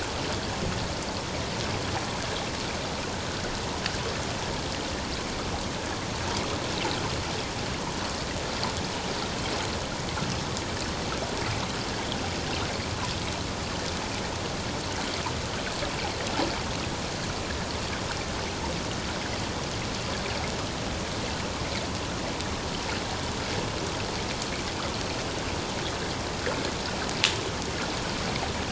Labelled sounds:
11.9	12.2	water noise, 3.1 to 3.4 kHz

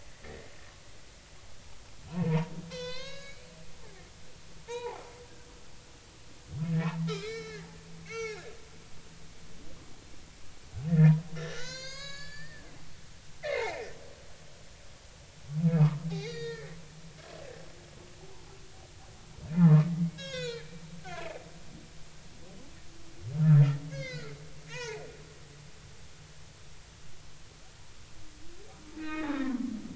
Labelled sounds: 0.2	0.5	humpback whale, 1.8 to 2.0 kHz
2.1	4.4	humpback whale, 0.80 to 6.8 kHz
4.7	5.0	humpback whale, 0.80 to 4.0 kHz
6.6	7.7	humpback whale, 1.2 to 5.5 kHz
8.0	8.4	humpback whale, 1.5 to 6.0 kHz
10.9	12.6	humpback whale, 0.93 to 7.7 kHz
13.4	13.9	humpback whale, 1.7 to 2.6 kHz
15.7	16.7	humpback whale, 0.90 to 4.9 kHz
19.6	20.8	humpback whale, 0.80 to 7.2 kHz
23.9	25.0	humpback whale, 0.80 to 6.1 kHz
28.9	29.9	humpback whale, 1.2 to 3.8 kHz

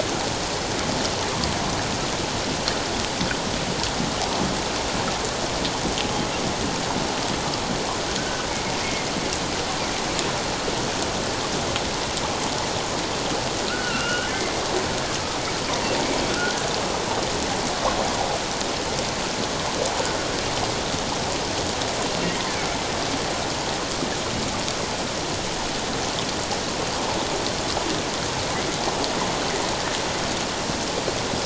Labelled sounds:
8.2	8.5	humpback whale, 1.4 to 1.6 kHz
13.7	14.6	humpback whale, 1.2 to 3.0 kHz

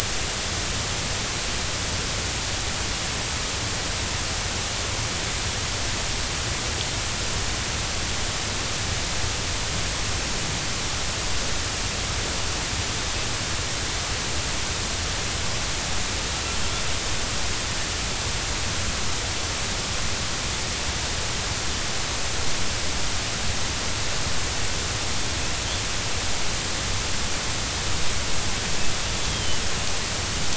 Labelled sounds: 29.3	29.6	killer whale, northern resident, 2.9 to 3.4 kHz

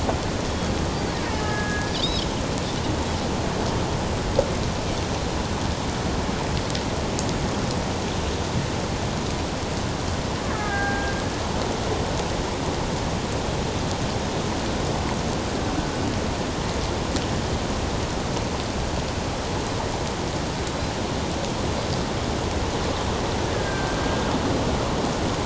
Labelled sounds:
0.5	0.7	Pacific white-sided dolphin, 3.2 to 3.4 kHz
1.2	2.3	Pacific white-sided dolphin, 1.6 to 5.3 kHz
10.5	11.1	Pacific white-sided dolphin, 1.5 to 1.8 kHz
10.5	10.8	killer whale, Bigg's (transient), 1.2 to 1.3 kHz
23.5	24.0	Pacific white-sided dolphin, 1.5 to 1.8 kHz

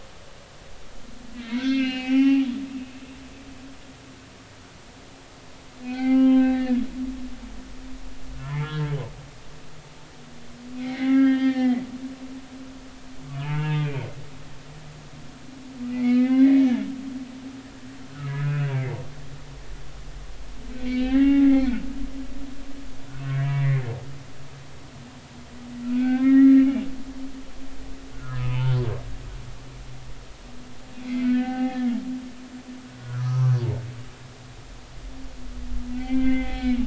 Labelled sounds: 1.4	2.5	humpback whale, 0.80 to 5.7 kHz
5.8	6.8	humpback whale, 0.80 to 4.8 kHz
8.4	9.0	humpback whale, 1.3 to 3.4 kHz
10.8	11.8	humpback whale, 1.5 to 4.8 kHz
13.3	14.0	humpback whale, 0.83 to 2.9 kHz
15.9	17.4	humpback whale, 1.2 to 3.5 kHz
18.2	19.0	humpback whale, 0.80 to 2.7 kHz
20.8	21.7	humpback whale, 0.80 to 4.0 kHz
23.3	23.9	humpback whale, 1.6 to 2.9 kHz
25.8	26.7	humpback whale, 1.3 to 2.8 kHz
28.1	28.7	humpback whale, 0.83 to 2.8 kHz
30.9	32.0	humpback whale, 0.80 to 2.6 kHz
33.2	33.6	humpback whale, 0.96 to 1.2 kHz
34.0	34.5	humpback whale, 1.1 to 1.5 kHz
35.9	36.8	humpback whale, 1.5 to 3.5 kHz

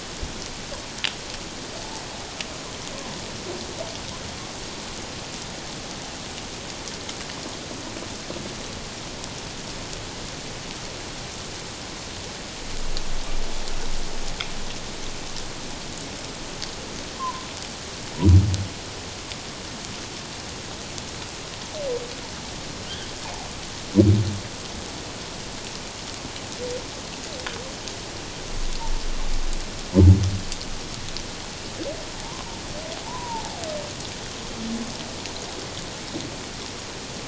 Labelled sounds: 17.1	17.5	humpback whale, 0.91 to 1.1 kHz
33.1	33.6	humpback whale, 0.78 to 1.1 kHz

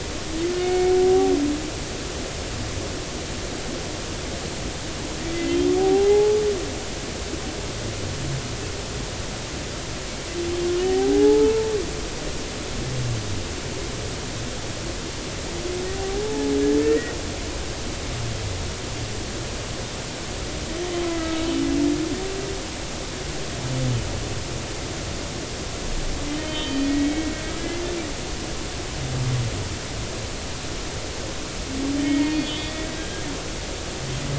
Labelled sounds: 0.6	0.9	humpback whale, 2.1 to 2.2 kHz
5.3	6.4	humpback whale, 0.80 to 2.1 kHz
10.8	11.7	humpback whale, 0.80 to 3.1 kHz
15.9	17.1	humpback whale, 0.80 to 2.0 kHz
21.0	21.4	humpback whale, 1.2 to 1.4 kHz
26.3	27.3	humpback whale, 1.9 to 3.1 kHz
31.9	33.2	humpback whale, 1.8 to 4.4 kHz
34.0	34.2	humpback whale, 1.6 to 1.7 kHz

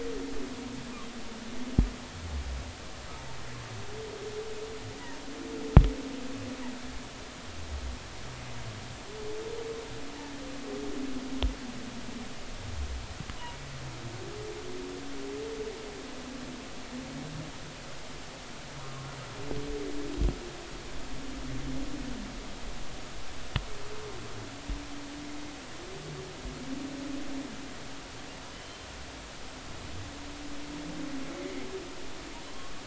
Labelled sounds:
28.5	28.8	humpback whale, 3.0 to 3.2 kHz

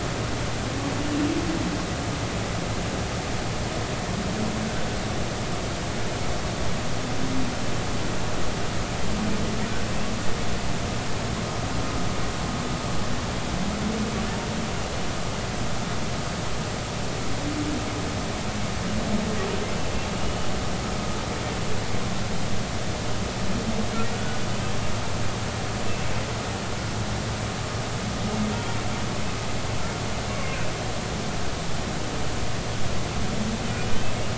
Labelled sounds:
20.2	20.5	humpback whale, 2.8 to 3.0 kHz
24.1	24.4	humpback whale, 1.4 to 1.5 kHz

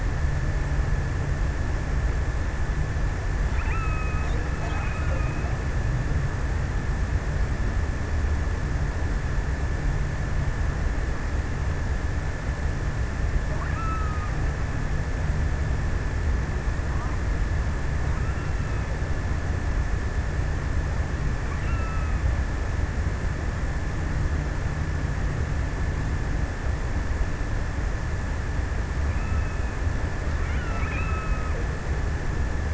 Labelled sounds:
3.4	5.6	killer whale, offshore, 0.93 to 3.0 kHz
13.2	14.8	killer whale, offshore, 1.0 to 2.9 kHz
17.8	19.9	killer whale, offshore, 1.0 to 3.0 kHz
20.9	22.9	killer whale, offshore, 1.0 to 3.0 kHz
28.2	32.4	killer whale, offshore, 0.93 to 3.1 kHz

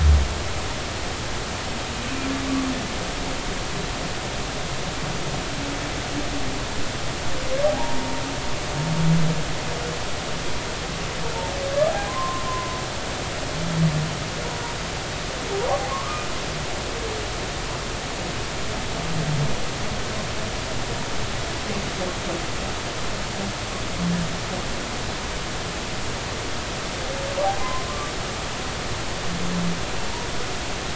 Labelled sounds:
7.6	8.2	humpback whale, 0.80 to 0.99 kHz
11.9	12.8	humpback whale, 0.80 to 1.1 kHz
15.9	16.3	humpback whale, 0.96 to 1.3 kHz
27.6	27.8	humpback whale, 0.96 to 1.1 kHz

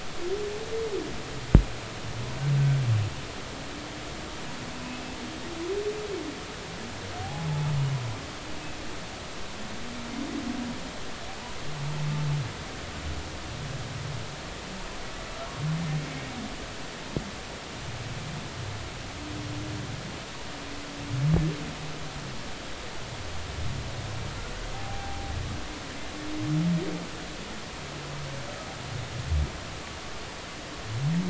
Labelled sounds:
7.2	7.7	humpback whale, 0.80 to 0.93 kHz
24.7	25.3	humpback whale, 0.80 to 0.86 kHz

